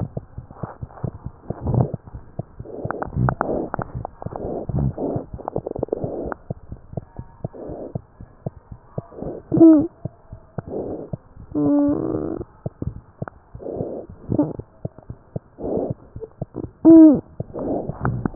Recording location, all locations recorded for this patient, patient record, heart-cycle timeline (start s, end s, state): mitral valve (MV)
aortic valve (AV)+pulmonary valve (PV)+tricuspid valve (TV)+mitral valve (MV)
#Age: Infant
#Sex: Female
#Height: 75.0 cm
#Weight: 9.5 kg
#Pregnancy status: False
#Murmur: Absent
#Murmur locations: nan
#Most audible location: nan
#Systolic murmur timing: nan
#Systolic murmur shape: nan
#Systolic murmur grading: nan
#Systolic murmur pitch: nan
#Systolic murmur quality: nan
#Diastolic murmur timing: nan
#Diastolic murmur shape: nan
#Diastolic murmur grading: nan
#Diastolic murmur pitch: nan
#Diastolic murmur quality: nan
#Outcome: Normal
#Campaign: 2015 screening campaign
0.00	6.48	unannotated
6.48	6.54	S2
6.54	6.70	diastole
6.70	6.75	S1
6.75	6.95	systole
6.95	7.02	S2
7.02	7.16	diastole
7.16	7.24	S1
7.24	7.42	systole
7.42	7.49	S2
7.49	7.66	diastole
7.66	7.74	S1
7.74	7.92	systole
7.92	8.00	S2
8.00	8.18	diastole
8.18	8.28	S1
8.28	8.44	systole
8.44	8.51	S2
8.51	8.69	diastole
8.69	8.77	S1
8.77	8.93	systole
8.93	9.02	S2
9.02	9.20	diastole
9.20	9.26	S1
9.26	9.49	systole
9.49	9.55	S2
9.55	10.03	unannotated
10.03	10.09	S2
10.09	10.31	diastole
10.31	10.39	S1
10.39	10.56	systole
10.56	10.62	S2
10.62	10.82	diastole
10.82	10.90	S1
10.90	11.12	systole
11.12	11.17	S2
11.17	18.35	unannotated